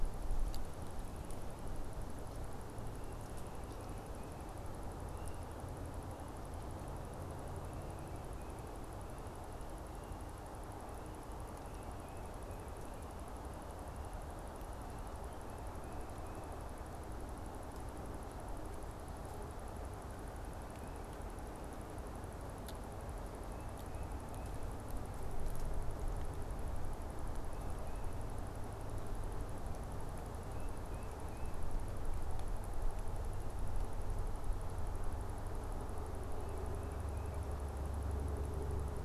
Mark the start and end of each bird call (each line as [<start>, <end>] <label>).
[30.36, 31.66] Tufted Titmouse (Baeolophus bicolor)